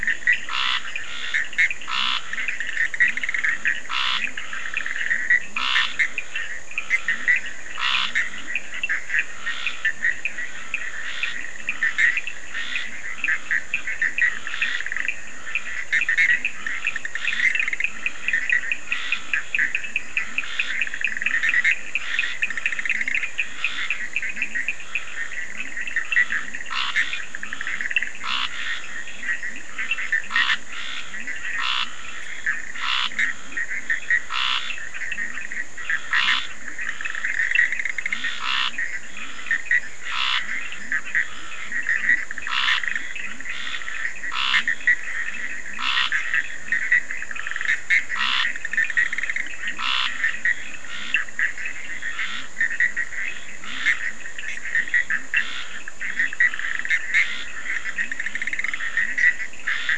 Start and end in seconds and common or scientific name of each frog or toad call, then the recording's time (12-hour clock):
0.0	59.9	Bischoff's tree frog
0.0	59.9	Scinax perereca
2.4	26.4	Cochran's lime tree frog
8.1	59.9	Leptodactylus latrans
37.0	40.0	Cochran's lime tree frog
12:30am